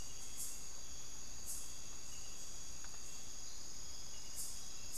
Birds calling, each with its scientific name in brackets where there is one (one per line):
Hauxwell's Thrush (Turdus hauxwelli)